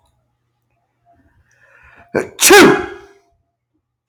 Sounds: Sneeze